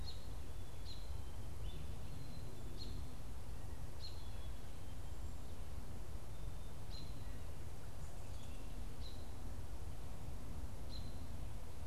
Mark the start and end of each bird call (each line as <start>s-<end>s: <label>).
0.0s-11.9s: American Robin (Turdus migratorius)
1.9s-11.9s: Black-capped Chickadee (Poecile atricapillus)